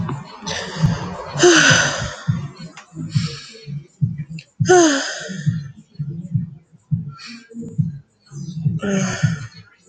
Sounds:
Sigh